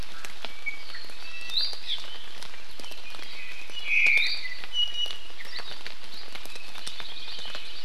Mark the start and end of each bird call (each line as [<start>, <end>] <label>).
[0.43, 1.83] Iiwi (Drepanis coccinea)
[3.23, 5.33] Iiwi (Drepanis coccinea)
[3.83, 4.43] Omao (Myadestes obscurus)
[6.63, 7.83] Hawaii Creeper (Loxops mana)